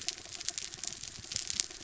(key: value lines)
label: anthrophony, mechanical
recorder: SoundTrap 300